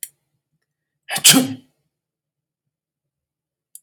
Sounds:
Sneeze